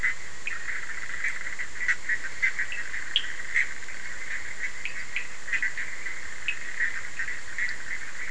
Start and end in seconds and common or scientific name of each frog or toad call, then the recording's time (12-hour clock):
0.0	0.5	Cochran's lime tree frog
0.0	8.3	Bischoff's tree frog
2.7	3.3	Cochran's lime tree frog
4.8	5.6	Cochran's lime tree frog
6.4	6.6	Cochran's lime tree frog
12:30am